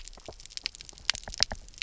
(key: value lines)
label: biophony, knock
recorder: SoundTrap 300